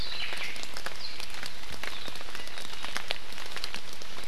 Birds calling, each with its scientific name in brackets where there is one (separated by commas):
Omao (Myadestes obscurus)